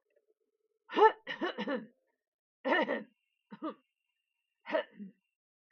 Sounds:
Throat clearing